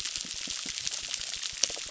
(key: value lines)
label: biophony
recorder: SoundTrap 600